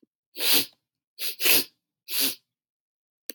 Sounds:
Sniff